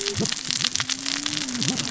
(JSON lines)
{"label": "biophony, cascading saw", "recorder": "SoundTrap 600 or HydroMoth"}